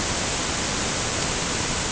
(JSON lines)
{"label": "ambient", "recorder": "HydroMoth"}